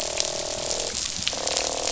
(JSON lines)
{"label": "biophony, croak", "recorder": "SoundTrap 500"}